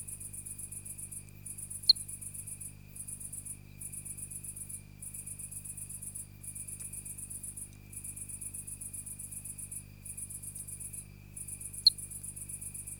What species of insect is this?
Eugryllodes pipiens